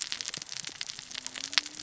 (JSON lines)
{"label": "biophony, cascading saw", "recorder": "SoundTrap 600 or HydroMoth"}